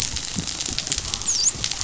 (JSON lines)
{"label": "biophony, dolphin", "recorder": "SoundTrap 500"}